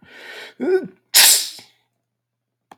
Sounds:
Sneeze